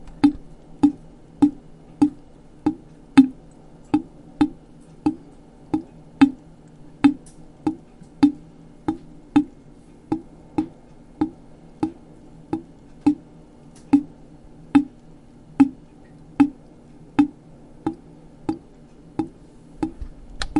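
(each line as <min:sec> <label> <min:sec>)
0:00.0 A steady sequence of water droplets dripping from a faucet into a sink, each creating a faint splash as it drains. 0:20.6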